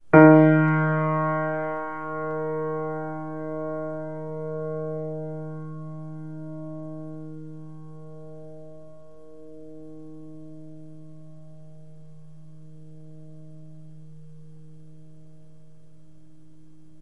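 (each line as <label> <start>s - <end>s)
The E flat key on the piano is pressed. 0.1s - 0.7s
Piano echoing. 0.1s - 16.9s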